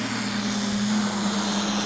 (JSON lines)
{"label": "anthrophony, boat engine", "recorder": "SoundTrap 500"}